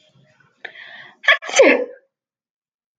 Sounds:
Sneeze